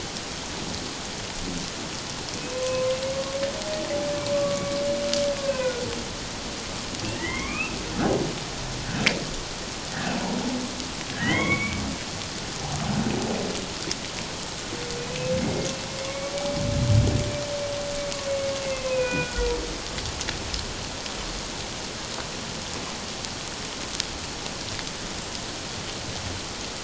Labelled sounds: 2.5	3.4	humpback whale, 0.91 to 1.1 kHz
4.3	4.8	humpback whale, 1.1 to 2.3 kHz
5.4	5.8	humpback whale, 1.4 to 2.7 kHz
7.1	8.2	humpback whale, 1.0 to 3.3 kHz
11.1	11.8	humpback whale, 0.97 to 3.4 kHz
18.3	19.5	humpback whale, 0.94 to 3.4 kHz

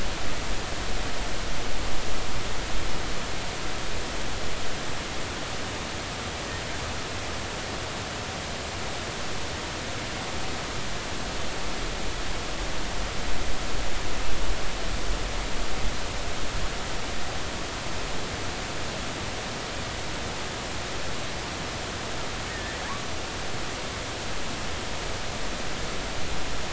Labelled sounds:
22.5	22.7	killer whale, offshore, 1.7 to 1.9 kHz

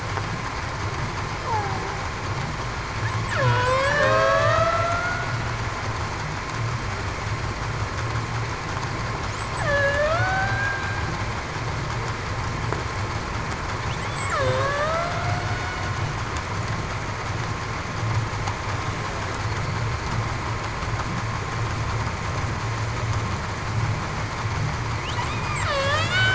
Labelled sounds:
1.4	1.8	killer whale, Bigg's (transient), 0.73 to 1.1 kHz
3.3	4.5	killer whale, Bigg's (transient), 0.47 to 8.0 kHz
9.6	10.1	killer whale, Bigg's (transient), 1.6 to 1.9 kHz
14.3	15.4	killer whale, Bigg's (transient), 0.49 to 0.75 kHz
25.3	26.0	killer whale, Bigg's (transient), 0.52 to 2.5 kHz

